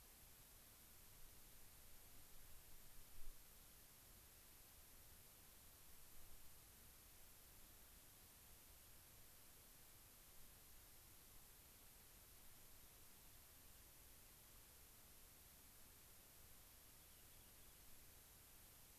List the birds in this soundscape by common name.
Rock Wren